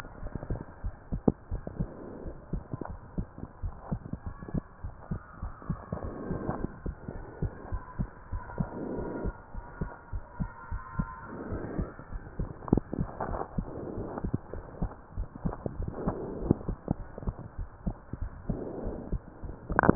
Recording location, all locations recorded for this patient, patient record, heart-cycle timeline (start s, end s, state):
pulmonary valve (PV)
aortic valve (AV)+pulmonary valve (PV)+tricuspid valve (TV)+mitral valve (MV)
#Age: Child
#Sex: Male
#Height: 139.0 cm
#Weight: 44.4 kg
#Pregnancy status: False
#Murmur: Absent
#Murmur locations: nan
#Most audible location: nan
#Systolic murmur timing: nan
#Systolic murmur shape: nan
#Systolic murmur grading: nan
#Systolic murmur pitch: nan
#Systolic murmur quality: nan
#Diastolic murmur timing: nan
#Diastolic murmur shape: nan
#Diastolic murmur grading: nan
#Diastolic murmur pitch: nan
#Diastolic murmur quality: nan
#Outcome: Normal
#Campaign: 2015 screening campaign
0.00	9.36	unannotated
9.36	9.54	diastole
9.54	9.64	S1
9.64	9.80	systole
9.80	9.92	S2
9.92	10.14	diastole
10.14	10.22	S1
10.22	10.38	systole
10.38	10.52	S2
10.52	10.72	diastole
10.72	10.82	S1
10.82	10.96	systole
10.96	11.12	S2
11.12	11.45	diastole
11.45	11.59	S1
11.59	11.76	systole
11.76	11.90	S2
11.90	12.12	diastole
12.12	12.22	S1
12.22	12.38	systole
12.38	12.50	S2
12.50	12.70	diastole
12.70	12.84	S1
12.84	12.98	systole
12.98	13.10	S2
13.10	13.28	diastole
13.28	13.42	S1
13.42	13.54	systole
13.54	13.66	S2
13.66	13.90	diastole
13.90	14.06	S1
14.06	14.22	systole
14.22	14.32	S2
14.32	14.54	diastole
14.54	14.64	S1
14.64	14.78	systole
14.78	14.92	S2
14.92	15.14	diastole
15.14	15.28	S1
15.28	15.44	systole
15.44	15.56	S2
15.56	15.74	diastole
15.74	15.92	S1
15.92	16.06	systole
16.06	16.20	S2
16.20	16.40	diastole
16.40	16.58	S1
16.58	16.66	systole
16.66	16.78	S2
16.78	16.98	diastole
16.98	17.08	S1
17.08	17.26	systole
17.26	17.40	S2
17.40	17.60	diastole
17.60	17.68	S1
17.68	17.82	systole
17.82	17.94	S2
17.94	18.20	diastole
18.20	18.34	S1
18.34	18.48	systole
18.48	18.62	S2
18.62	18.82	diastole
18.82	18.94	S1
18.94	19.95	unannotated